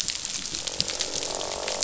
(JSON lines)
{"label": "biophony, croak", "recorder": "SoundTrap 500"}